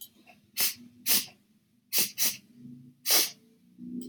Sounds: Sniff